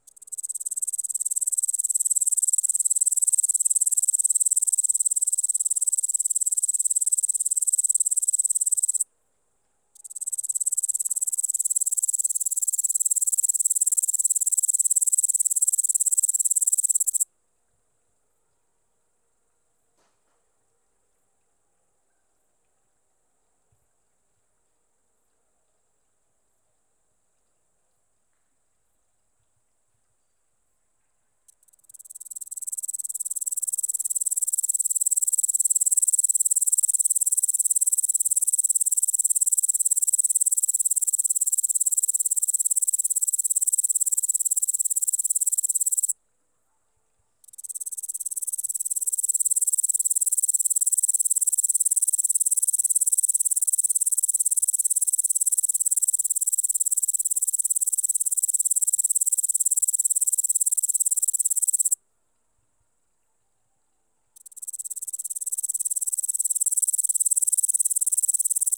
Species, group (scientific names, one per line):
Tettigonia cantans
Orthoptera